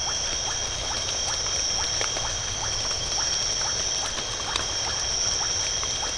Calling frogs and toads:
Leptodactylus notoaktites
7:30pm

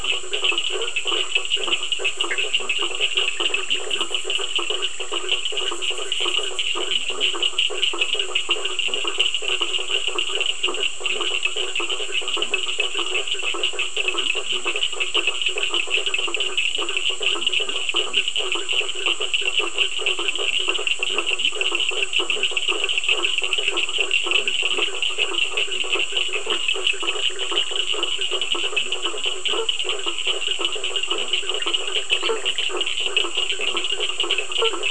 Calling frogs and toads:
Boana faber, Sphaenorhynchus surdus, Leptodactylus latrans, Boana bischoffi, Dendropsophus minutus
9:15pm

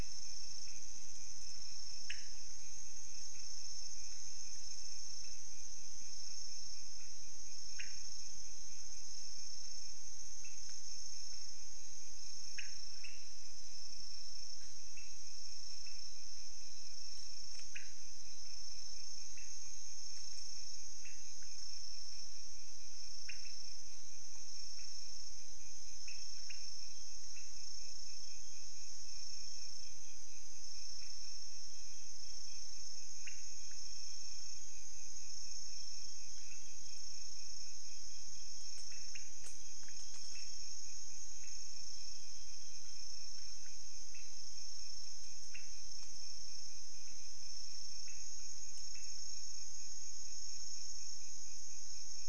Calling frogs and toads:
Leptodactylus podicipinus
1:15am

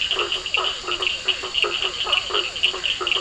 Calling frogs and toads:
Boana faber, Elachistocleis bicolor, Physalaemus cuvieri, Sphaenorhynchus surdus
9:30pm

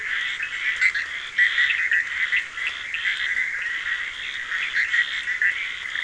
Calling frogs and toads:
Boana bischoffi, Scinax perereca, Sphaenorhynchus surdus
4:15am

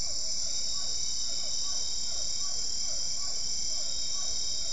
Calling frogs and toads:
Physalaemus cuvieri
8:00pm

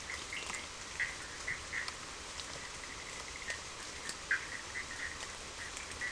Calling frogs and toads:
Boana bischoffi
9:15pm

